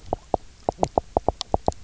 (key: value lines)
label: biophony, knock
recorder: SoundTrap 300